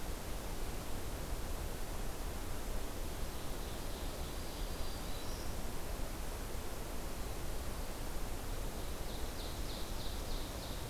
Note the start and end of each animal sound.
[3.02, 5.28] Ovenbird (Seiurus aurocapilla)
[4.42, 5.67] Black-throated Green Warbler (Setophaga virens)
[8.42, 10.89] Ovenbird (Seiurus aurocapilla)

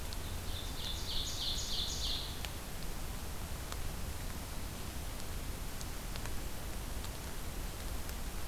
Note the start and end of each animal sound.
[0.00, 2.38] Ovenbird (Seiurus aurocapilla)

